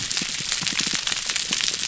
{"label": "biophony, pulse", "recorder": "SoundTrap 300"}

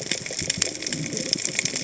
{"label": "biophony, cascading saw", "recorder": "HydroMoth"}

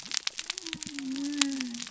{"label": "biophony", "recorder": "SoundTrap 300"}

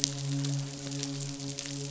{"label": "biophony, midshipman", "recorder": "SoundTrap 500"}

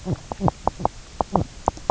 {"label": "biophony, knock croak", "recorder": "SoundTrap 300"}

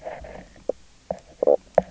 {"label": "biophony, knock croak", "recorder": "SoundTrap 300"}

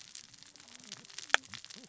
{"label": "biophony, cascading saw", "recorder": "SoundTrap 600 or HydroMoth"}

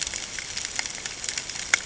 {"label": "ambient", "recorder": "HydroMoth"}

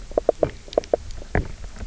{"label": "biophony, knock croak", "recorder": "SoundTrap 300"}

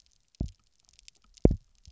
{"label": "biophony, double pulse", "recorder": "SoundTrap 300"}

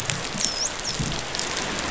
{"label": "biophony, dolphin", "recorder": "SoundTrap 500"}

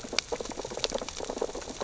{"label": "biophony, sea urchins (Echinidae)", "recorder": "SoundTrap 600 or HydroMoth"}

